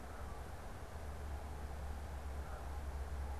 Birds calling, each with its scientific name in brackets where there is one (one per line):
Canada Goose (Branta canadensis)